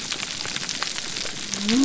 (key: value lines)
label: biophony
recorder: SoundTrap 300